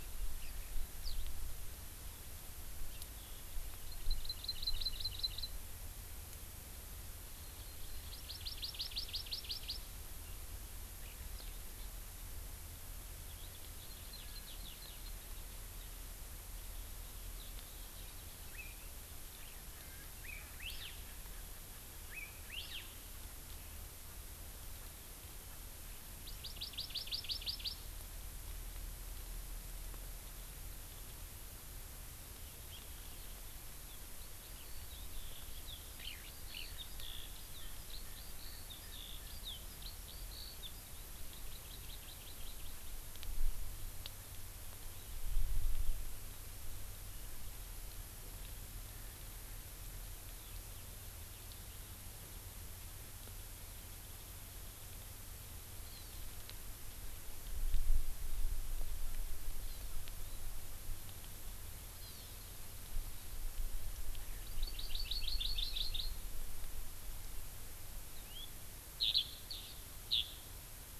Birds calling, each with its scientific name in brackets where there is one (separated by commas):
House Finch (Haemorhous mexicanus), Erckel's Francolin (Pternistis erckelii), Eurasian Skylark (Alauda arvensis), Hawaii Elepaio (Chasiempis sandwichensis), Hawaii Amakihi (Chlorodrepanis virens)